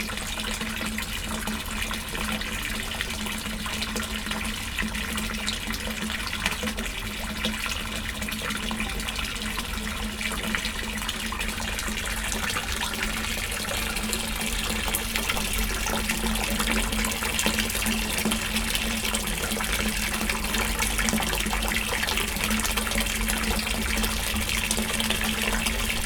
Is sand blowing in the wind?
no